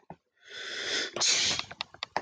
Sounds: Sneeze